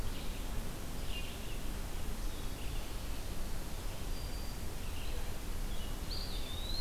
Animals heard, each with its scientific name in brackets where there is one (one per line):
Eastern Wood-Pewee (Contopus virens)
Black-throated Green Warbler (Setophaga virens)
Red-eyed Vireo (Vireo olivaceus)